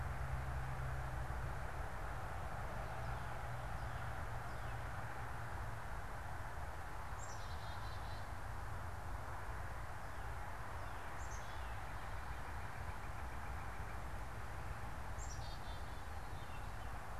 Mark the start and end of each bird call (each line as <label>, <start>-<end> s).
Northern Cardinal (Cardinalis cardinalis), 2.8-5.2 s
Black-capped Chickadee (Poecile atricapillus), 6.6-16.5 s
Gray Catbird (Dumetella carolinensis), 15.3-17.2 s